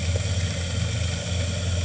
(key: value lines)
label: anthrophony, boat engine
recorder: HydroMoth